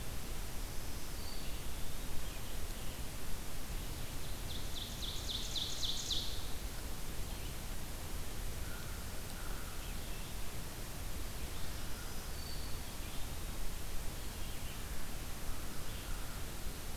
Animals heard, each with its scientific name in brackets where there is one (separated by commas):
Black-throated Green Warbler (Setophaga virens), American Crow (Corvus brachyrhynchos), Ovenbird (Seiurus aurocapilla), Red-eyed Vireo (Vireo olivaceus)